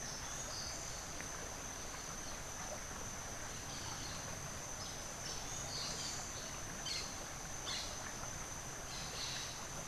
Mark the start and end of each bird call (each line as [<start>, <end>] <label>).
[0.00, 0.80] Orange-billed Nightingale-Thrush (Catharus aurantiirostris)
[5.10, 6.40] Orange-billed Nightingale-Thrush (Catharus aurantiirostris)
[6.80, 9.80] Crimson-fronted Parakeet (Psittacara finschi)